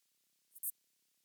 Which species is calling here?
Synephippius obvius